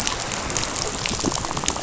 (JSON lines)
{"label": "biophony, rattle", "recorder": "SoundTrap 500"}